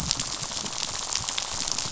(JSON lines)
{"label": "biophony, rattle", "recorder": "SoundTrap 500"}